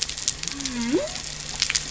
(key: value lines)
label: biophony
recorder: SoundTrap 300